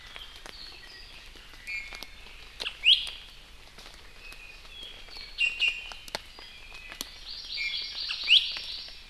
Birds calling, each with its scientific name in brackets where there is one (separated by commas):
Iiwi (Drepanis coccinea), Hawaii Amakihi (Chlorodrepanis virens)